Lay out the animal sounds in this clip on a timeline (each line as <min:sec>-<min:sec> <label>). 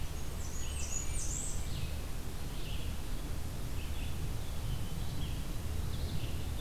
0:00.0-0:01.8 Blackburnian Warbler (Setophaga fusca)
0:00.0-0:06.6 Red-eyed Vireo (Vireo olivaceus)
0:04.3-0:05.4 Hermit Thrush (Catharus guttatus)
0:05.7-0:06.6 Scarlet Tanager (Piranga olivacea)